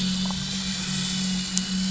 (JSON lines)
{"label": "anthrophony, boat engine", "recorder": "SoundTrap 500"}
{"label": "biophony, damselfish", "recorder": "SoundTrap 500"}